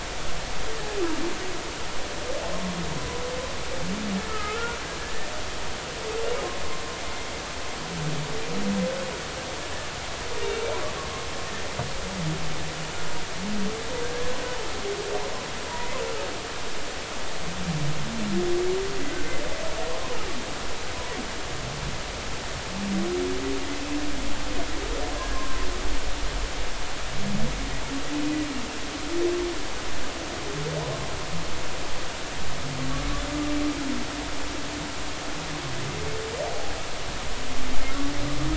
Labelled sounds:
4.3	4.8	humpback whale, 1.2 to 1.5 kHz
14.0	14.3	humpback whale, 1.5 to 1.7 kHz
25.3	25.6	humpback whale, 0.99 to 1.1 kHz
36.5	36.7	humpback whale, 0.80 to 0.86 kHz

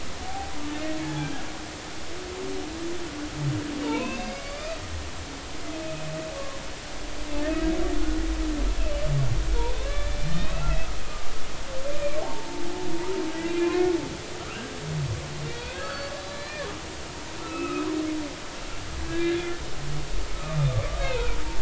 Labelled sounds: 0.2	0.6	humpback whale, 0.80 to 0.86 kHz
3.8	4.8	humpback whale, 0.83 to 4.9 kHz
5.8	6.6	humpback whale, 0.99 to 2.6 kHz
9.8	10.8	humpback whale, 0.99 to 4.3 kHz
11.1	11.3	humpback whale, 1.1 to 1.2 kHz
11.9	12.6	humpback whale, 0.80 to 2.5 kHz
13.5	13.8	humpback whale, 2.4 to 2.6 kHz
15.5	16.7	humpback whale, 1.2 to 4.5 kHz
17.4	17.9	humpback whale, 1.2 to 2.7 kHz
19.1	19.6	humpback whale, 1.6 to 3.8 kHz
20.3	21.4	humpback whale, 1.1 to 1.7 kHz

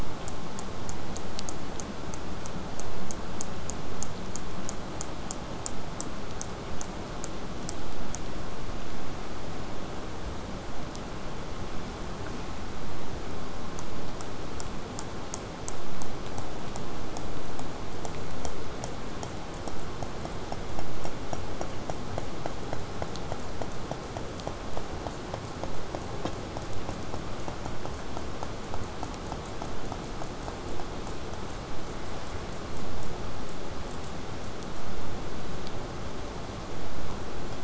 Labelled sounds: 1.4	8.2	killer whale, southern resident, 1.8 to 8.0 kHz
22.7	27.7	vessel noise, 0 to 8.0 kHz

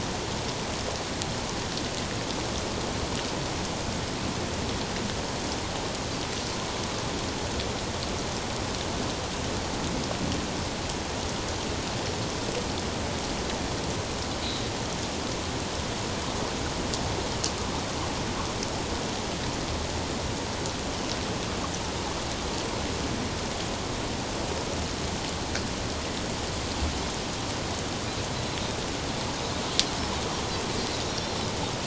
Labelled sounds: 31.1	31.4	Pacific white-sided dolphin, 5.4 to 5.8 kHz

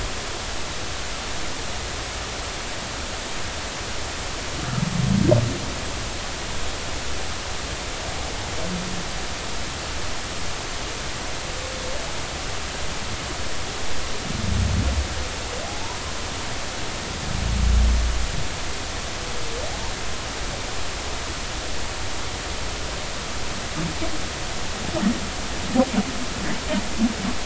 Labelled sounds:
15.7	16.0	humpback whale, 0.80 to 1.0 kHz

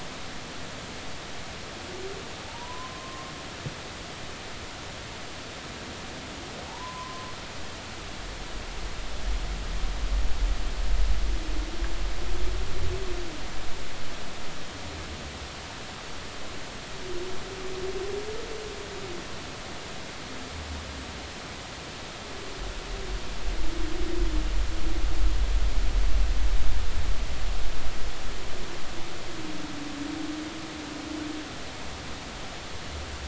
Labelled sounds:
2.5	3.3	humpback whale, 0.80 to 1.1 kHz
6.7	7.3	humpback whale, 0.80 to 1.2 kHz

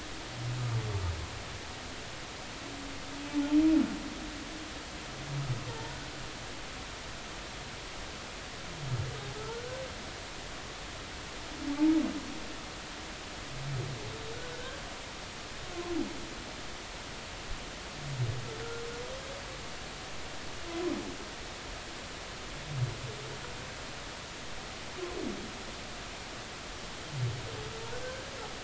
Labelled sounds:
9.3	9.6	humpback whale, 1.2 to 1.5 kHz

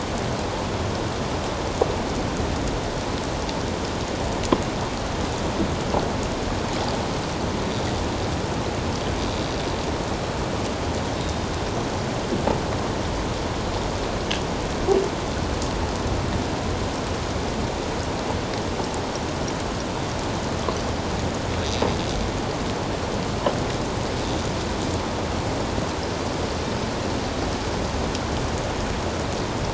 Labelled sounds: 11.1	11.5	killer whale, offshore, 3.6 to 3.8 kHz

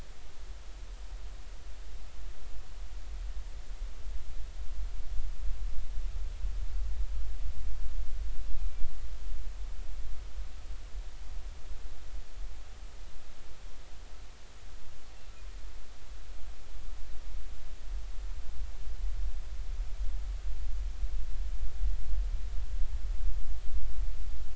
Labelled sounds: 8.5	8.9	killer whale, northern resident, A clan, AA subclan, call N04, 2.3 to 2.7 kHz

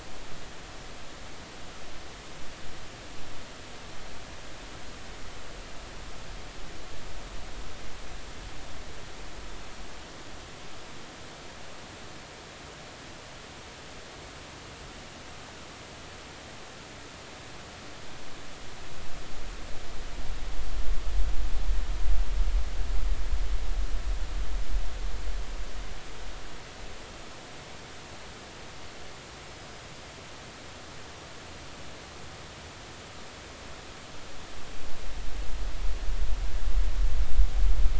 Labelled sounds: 29.5	29.9	small unidentified odontocete, 4.9 to 5.4 kHz

